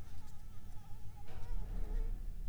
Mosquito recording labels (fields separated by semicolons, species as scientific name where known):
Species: Anopheles arabiensis; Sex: female; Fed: unfed; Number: one; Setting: cup